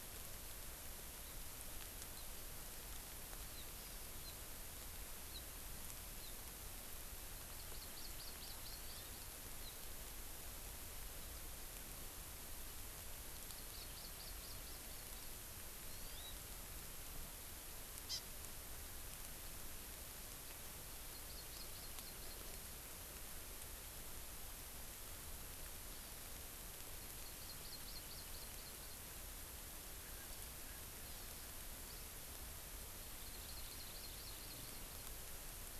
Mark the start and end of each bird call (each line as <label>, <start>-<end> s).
Hawaii Amakihi (Chlorodrepanis virens), 7.5-9.0 s
Hawaii Amakihi (Chlorodrepanis virens), 13.5-15.3 s
Hawaii Amakihi (Chlorodrepanis virens), 15.9-16.4 s
Hawaii Amakihi (Chlorodrepanis virens), 18.1-18.2 s
Hawaii Amakihi (Chlorodrepanis virens), 21.3-22.4 s
Hawaii Amakihi (Chlorodrepanis virens), 27.2-29.0 s
Hawaii Amakihi (Chlorodrepanis virens), 33.2-35.1 s